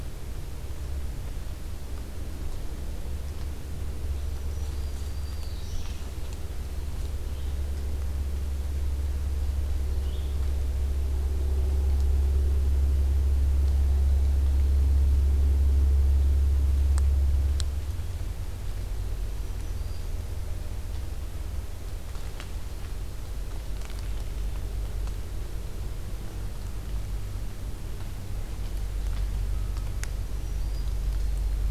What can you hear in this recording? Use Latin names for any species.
Setophaga virens, Vireo olivaceus